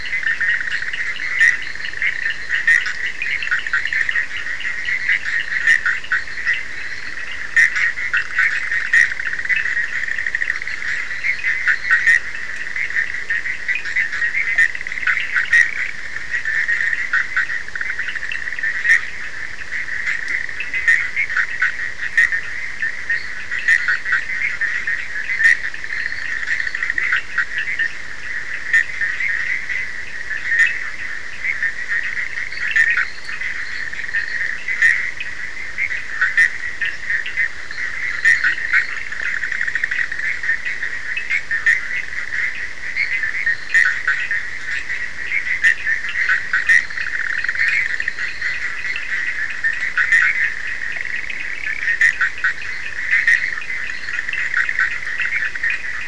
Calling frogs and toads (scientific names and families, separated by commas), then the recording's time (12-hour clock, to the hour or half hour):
Boana leptolineata (Hylidae), Boana bischoffi (Hylidae), Sphaenorhynchus surdus (Hylidae), Leptodactylus latrans (Leptodactylidae)
12:30am